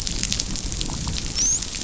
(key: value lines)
label: biophony, dolphin
recorder: SoundTrap 500